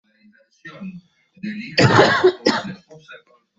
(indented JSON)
{
  "expert_labels": [
    {
      "quality": "good",
      "cough_type": "wet",
      "dyspnea": false,
      "wheezing": false,
      "stridor": false,
      "choking": false,
      "congestion": false,
      "nothing": true,
      "diagnosis": "lower respiratory tract infection",
      "severity": "mild"
    }
  ],
  "age": 26,
  "gender": "female",
  "respiratory_condition": false,
  "fever_muscle_pain": false,
  "status": "healthy"
}